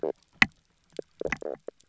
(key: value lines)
label: biophony, knock croak
recorder: SoundTrap 300